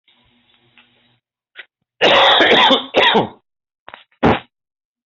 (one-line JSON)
{"expert_labels": [{"quality": "good", "cough_type": "wet", "dyspnea": false, "wheezing": false, "stridor": false, "choking": false, "congestion": false, "nothing": true, "diagnosis": "healthy cough", "severity": "pseudocough/healthy cough"}], "age": 46, "gender": "male", "respiratory_condition": true, "fever_muscle_pain": false, "status": "symptomatic"}